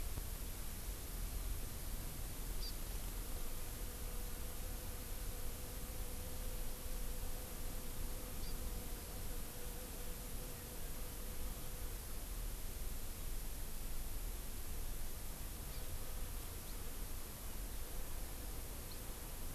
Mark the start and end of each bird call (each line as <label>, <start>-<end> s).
Hawaii Amakihi (Chlorodrepanis virens), 2.6-2.7 s
Hawaii Amakihi (Chlorodrepanis virens), 8.4-8.6 s
Hawaii Amakihi (Chlorodrepanis virens), 15.7-15.9 s